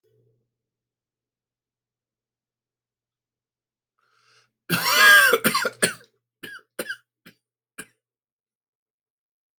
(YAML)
expert_labels:
- quality: good
  cough_type: dry
  dyspnea: false
  wheezing: true
  stridor: false
  choking: false
  congestion: false
  nothing: false
  diagnosis: obstructive lung disease
  severity: mild
age: 49
gender: male
respiratory_condition: false
fever_muscle_pain: false
status: COVID-19